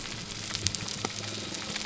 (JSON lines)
{"label": "biophony", "recorder": "SoundTrap 300"}